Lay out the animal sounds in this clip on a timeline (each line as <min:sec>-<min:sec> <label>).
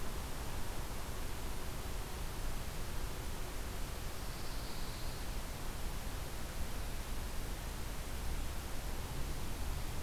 0:03.9-0:05.4 Pine Warbler (Setophaga pinus)